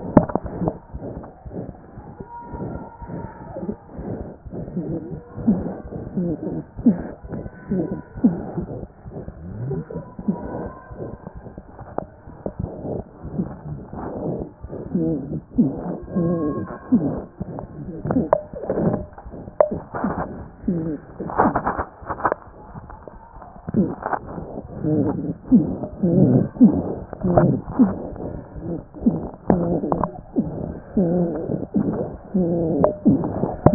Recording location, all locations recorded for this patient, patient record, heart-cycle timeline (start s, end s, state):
aortic valve (AV)
aortic valve (AV)+mitral valve (MV)
#Age: Child
#Sex: Female
#Height: 89.0 cm
#Weight: 13.8 kg
#Pregnancy status: False
#Murmur: Present
#Murmur locations: aortic valve (AV)+mitral valve (MV)
#Most audible location: aortic valve (AV)
#Systolic murmur timing: Holosystolic
#Systolic murmur shape: Diamond
#Systolic murmur grading: I/VI
#Systolic murmur pitch: Medium
#Systolic murmur quality: Blowing
#Diastolic murmur timing: nan
#Diastolic murmur shape: nan
#Diastolic murmur grading: nan
#Diastolic murmur pitch: nan
#Diastolic murmur quality: nan
#Outcome: Abnormal
#Campaign: 2014 screening campaign
0.00	0.84	unannotated
0.84	0.94	diastole
0.94	1.02	S1
1.02	1.16	systole
1.16	1.24	S2
1.24	1.45	diastole
1.45	1.53	S1
1.53	1.68	systole
1.68	1.76	S2
1.76	1.97	diastole
1.97	2.06	S1
2.06	2.20	systole
2.20	2.28	S2
2.28	2.52	diastole
2.52	2.62	S1
2.62	2.75	systole
2.75	2.84	S2
2.84	3.01	diastole
3.01	3.09	S1
3.09	3.23	systole
3.23	3.30	S2
3.30	3.49	diastole
3.49	33.74	unannotated